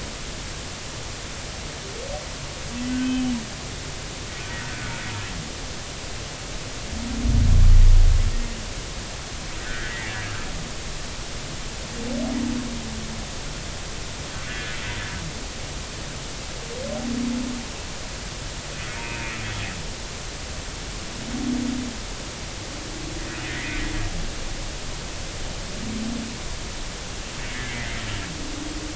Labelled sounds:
2.9	3.3	humpback whale, 1.5 to 3.1 kHz
9.6	10.1	humpback whale, 1.4 to 2.0 kHz
14.5	14.8	humpback whale, 1.4 to 1.8 kHz
18.9	19.4	humpback whale, 0.86 to 2.6 kHz
23.5	23.9	humpback whale, 1.8 to 2.2 kHz
27.4	27.9	humpback whale, 1.6 to 2.3 kHz

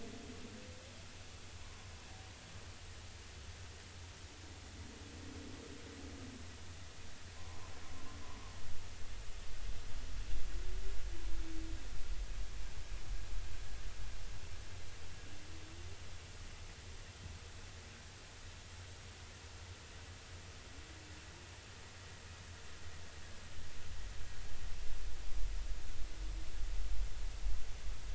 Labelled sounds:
1.6	1.9	humpback whale, 0.93 to 1.1 kHz
7.4	7.7	humpback whale, 0.93 to 1.1 kHz

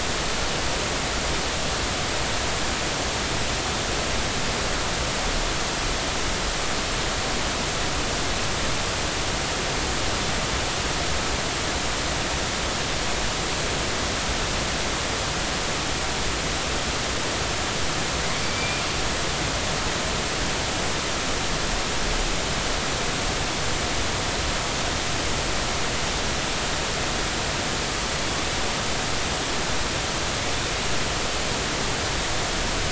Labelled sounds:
18.4	18.8	killer whale, northern resident, A clan, AB subclan, 2.2 to 2.5 kHz

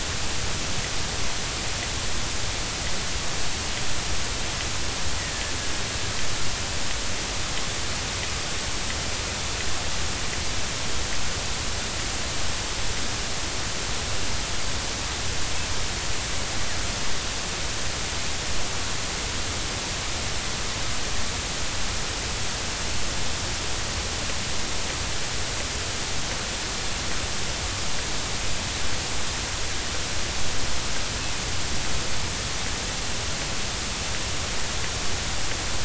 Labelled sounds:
5.2	5.4	killer whale, northern resident, A clan, AA subclan, 1.7 to 2.0 kHz

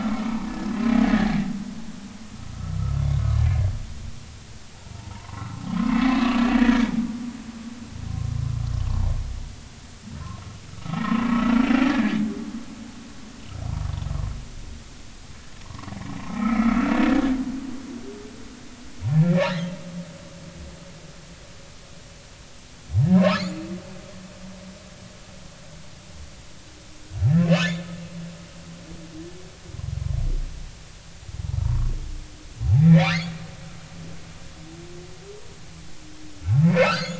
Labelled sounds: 2.8	3.0	humpback whale, 1.2 to 1.4 kHz
4.9	6.9	humpback whale, 0.83 to 2.8 kHz
10.8	11.3	humpback whale, 0.96 to 1.4 kHz
11.9	12.2	humpback whale, 1.6 to 1.8 kHz
15.6	16.8	humpback whale, 0.90 to 2.4 kHz
19.4	19.7	humpback whale, 3.7 to 4.3 kHz
23.1	23.4	humpback whale, 0.90 to 1.4 kHz
27.4	27.7	humpback whale, 2.5 to 5.3 kHz
31.6	31.9	humpback whale, 0.86 to 1.2 kHz
32.6	33.1	humpback whale, 0.80 to 2.6 kHz
36.4	37.1	humpback whale, 0.80 to 7.0 kHz

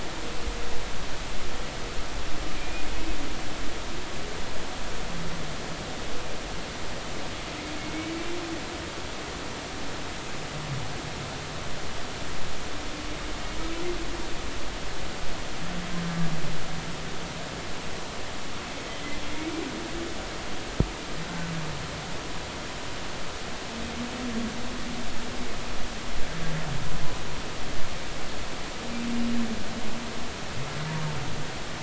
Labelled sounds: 2.6	2.8	humpback whale, 2.2 to 2.5 kHz
7.8	8.3	humpback whale, 2.1 to 2.4 kHz

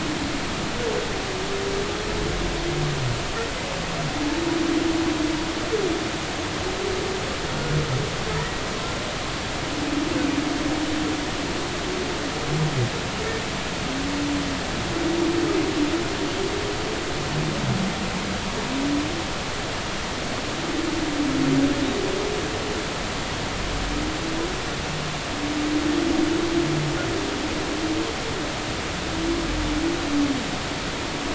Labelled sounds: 8.3	8.6	humpback whale, 1.7 to 2.0 kHz

